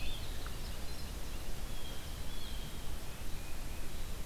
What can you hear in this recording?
Winter Wren, Red-eyed Vireo, Blue Jay, Tufted Titmouse